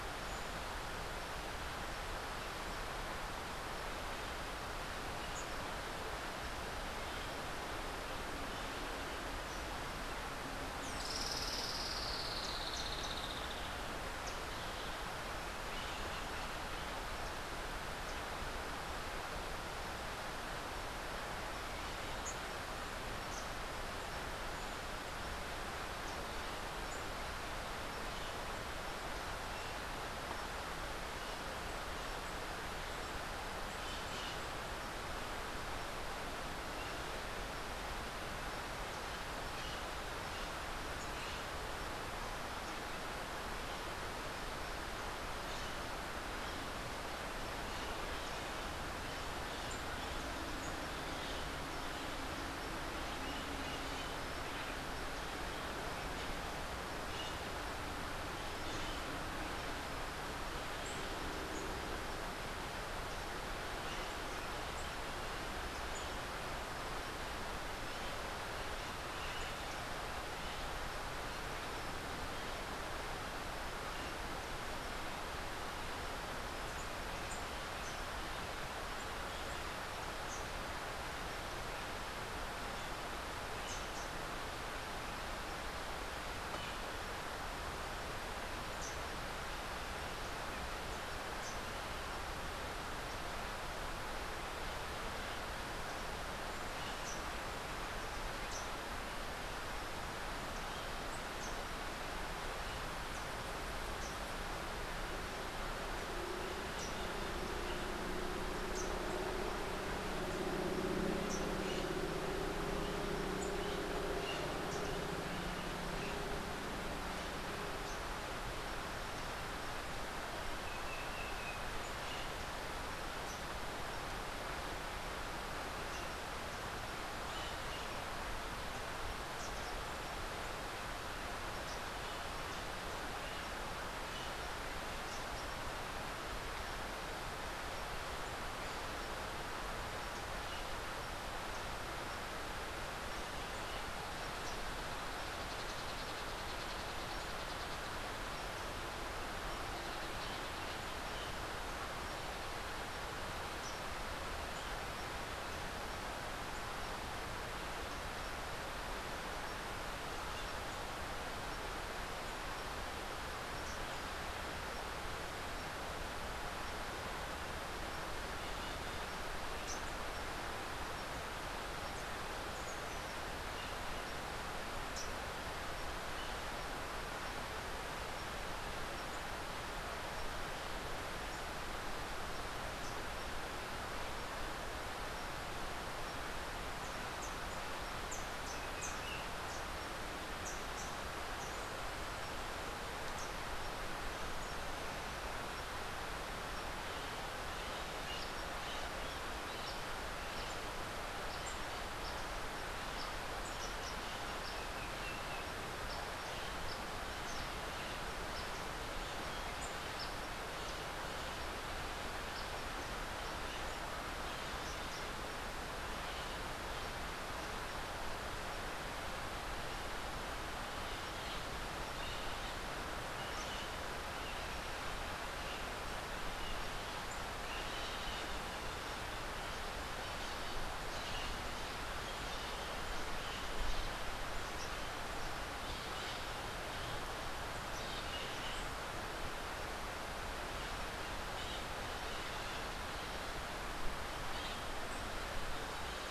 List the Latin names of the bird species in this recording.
Pachyramphus aglaiae, Amazilia tzacatl, Basileuterus rufifrons, Psittacara finschi